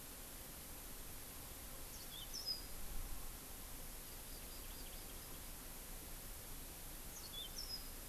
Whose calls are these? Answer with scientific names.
Crithagra mozambica, Chlorodrepanis virens